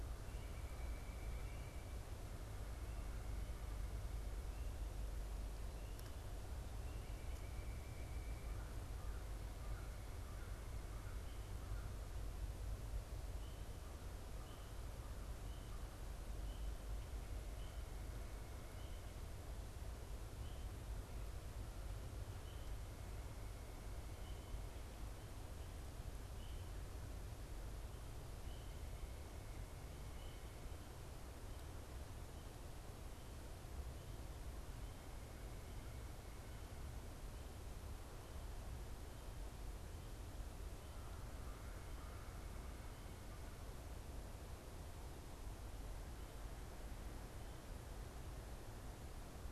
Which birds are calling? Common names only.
White-breasted Nuthatch, American Crow